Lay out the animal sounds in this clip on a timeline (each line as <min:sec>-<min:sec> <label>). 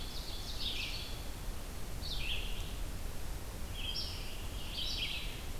0:00.0-0:00.9 Ovenbird (Seiurus aurocapilla)
0:00.0-0:05.6 Red-eyed Vireo (Vireo olivaceus)
0:03.7-0:05.3 Scarlet Tanager (Piranga olivacea)